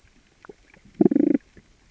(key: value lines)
label: biophony, damselfish
recorder: SoundTrap 600 or HydroMoth